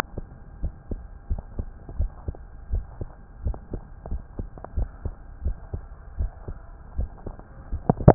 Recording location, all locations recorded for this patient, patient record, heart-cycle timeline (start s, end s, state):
tricuspid valve (TV)
aortic valve (AV)+pulmonary valve (PV)+tricuspid valve (TV)+mitral valve (MV)
#Age: Adolescent
#Sex: Male
#Height: 155.0 cm
#Weight: 53.0 kg
#Pregnancy status: False
#Murmur: Absent
#Murmur locations: nan
#Most audible location: nan
#Systolic murmur timing: nan
#Systolic murmur shape: nan
#Systolic murmur grading: nan
#Systolic murmur pitch: nan
#Systolic murmur quality: nan
#Diastolic murmur timing: nan
#Diastolic murmur shape: nan
#Diastolic murmur grading: nan
#Diastolic murmur pitch: nan
#Diastolic murmur quality: nan
#Outcome: Normal
#Campaign: 2015 screening campaign
0.00	0.59	unannotated
0.59	0.74	S1
0.74	0.88	systole
0.88	1.02	S2
1.02	1.28	diastole
1.28	1.42	S1
1.42	1.54	systole
1.54	1.66	S2
1.66	1.94	diastole
1.94	2.10	S1
2.10	2.24	systole
2.24	2.34	S2
2.34	2.70	diastole
2.70	2.86	S1
2.86	2.97	systole
2.97	3.08	S2
3.08	3.42	diastole
3.42	3.58	S1
3.58	3.69	systole
3.69	3.82	S2
3.82	4.08	diastole
4.08	4.22	S1
4.22	4.35	systole
4.35	4.48	S2
4.48	4.74	diastole
4.74	4.92	S1
4.92	5.01	systole
5.01	5.14	S2
5.14	5.41	diastole
5.41	5.56	S1
5.56	5.70	systole
5.70	5.84	S2
5.84	6.16	diastole
6.16	6.32	S1
6.32	6.45	systole
6.45	6.60	S2
6.60	6.93	diastole
6.93	7.10	S1
7.10	7.23	systole
7.23	7.36	S2
7.36	7.70	diastole
7.70	7.84	S1
7.84	8.14	unannotated